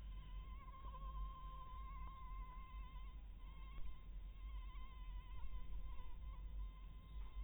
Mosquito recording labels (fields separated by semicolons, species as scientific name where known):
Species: Anopheles maculatus; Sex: female; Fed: blood-fed; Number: one; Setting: cup